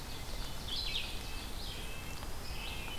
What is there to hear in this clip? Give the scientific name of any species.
Seiurus aurocapilla, Vireo olivaceus, Sitta canadensis